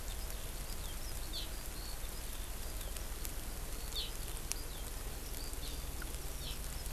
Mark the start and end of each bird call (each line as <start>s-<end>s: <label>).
0.0s-6.9s: Eurasian Skylark (Alauda arvensis)